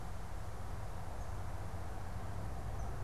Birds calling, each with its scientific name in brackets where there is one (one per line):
Eastern Kingbird (Tyrannus tyrannus)